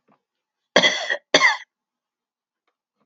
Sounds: Cough